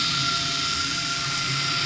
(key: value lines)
label: anthrophony, boat engine
recorder: SoundTrap 500